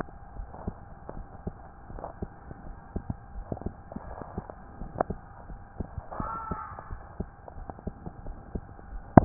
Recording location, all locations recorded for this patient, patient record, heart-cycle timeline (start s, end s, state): tricuspid valve (TV)
aortic valve (AV)+pulmonary valve (PV)+tricuspid valve (TV)
#Age: Child
#Sex: Male
#Height: 130.0 cm
#Weight: 38.5 kg
#Pregnancy status: False
#Murmur: Absent
#Murmur locations: nan
#Most audible location: nan
#Systolic murmur timing: nan
#Systolic murmur shape: nan
#Systolic murmur grading: nan
#Systolic murmur pitch: nan
#Systolic murmur quality: nan
#Diastolic murmur timing: nan
#Diastolic murmur shape: nan
#Diastolic murmur grading: nan
#Diastolic murmur pitch: nan
#Diastolic murmur quality: nan
#Outcome: Normal
#Campaign: 2015 screening campaign
0.00	0.34	unannotated
0.34	0.50	S1
0.50	0.66	systole
0.66	0.76	S2
0.76	1.14	diastole
1.14	1.26	S1
1.26	1.44	systole
1.44	1.56	S2
1.56	1.89	diastole
1.89	2.04	S1
2.04	2.18	systole
2.18	2.30	S2
2.30	2.64	diastole
2.64	2.76	S1
2.76	2.92	systole
2.92	3.04	S2
3.04	3.34	diastole
3.34	3.48	S1
3.48	3.62	systole
3.62	3.76	S2
3.76	4.06	diastole
4.06	4.18	S1
4.18	4.34	systole
4.34	4.44	S2
4.44	4.78	diastole
4.78	4.92	S1
4.92	5.08	systole
5.08	5.18	S2
5.18	5.48	diastole
5.48	5.60	S1
5.60	5.76	systole
5.76	5.90	S2
5.90	6.20	diastole
6.20	6.32	S1
6.32	6.48	systole
6.48	6.58	S2
6.58	6.92	diastole
6.92	7.02	S1
7.02	7.16	systole
7.16	7.28	S2
7.28	7.58	diastole
7.58	7.68	S1
7.68	7.84	systole
7.84	7.94	S2
7.94	8.26	diastole
8.26	8.38	S1
8.38	8.52	systole
8.52	8.62	S2
8.62	8.90	diastole
8.90	9.04	S1
9.04	9.25	unannotated